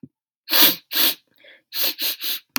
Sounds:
Sniff